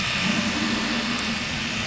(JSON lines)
{"label": "anthrophony, boat engine", "recorder": "SoundTrap 500"}